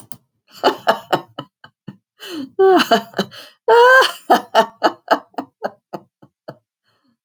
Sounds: Laughter